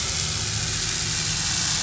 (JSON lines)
{"label": "anthrophony, boat engine", "recorder": "SoundTrap 500"}